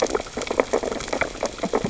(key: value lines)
label: biophony, sea urchins (Echinidae)
recorder: SoundTrap 600 or HydroMoth